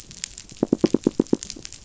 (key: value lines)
label: biophony, knock
recorder: SoundTrap 500